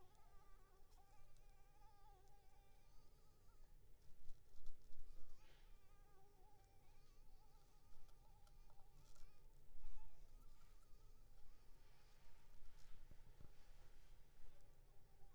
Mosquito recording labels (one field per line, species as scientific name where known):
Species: Anopheles arabiensis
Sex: female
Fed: unfed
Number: one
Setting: cup